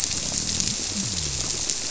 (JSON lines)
{"label": "biophony", "recorder": "SoundTrap 300"}